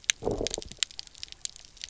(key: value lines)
label: biophony, low growl
recorder: SoundTrap 300